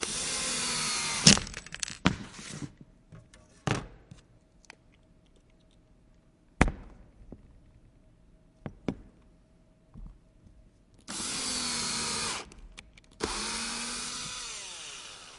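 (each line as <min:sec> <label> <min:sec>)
0:00.0 An electric construction drill is operating. 0:02.3
0:03.6 An item is dropped. 0:04.6
0:06.4 A strong ticking sound. 0:07.1
0:10.9 An electric drill is operating. 0:13.0
0:13.2 An electric drill sound fading away. 0:15.4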